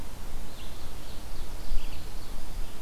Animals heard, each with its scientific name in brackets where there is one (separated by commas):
Ovenbird (Seiurus aurocapilla), Red-eyed Vireo (Vireo olivaceus)